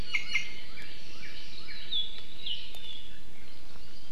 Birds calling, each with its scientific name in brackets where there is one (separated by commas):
Iiwi (Drepanis coccinea), Northern Cardinal (Cardinalis cardinalis)